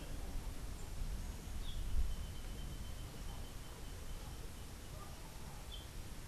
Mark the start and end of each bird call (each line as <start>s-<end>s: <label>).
5.5s-6.0s: Yellow-throated Euphonia (Euphonia hirundinacea)